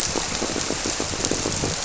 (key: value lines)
label: biophony
recorder: SoundTrap 300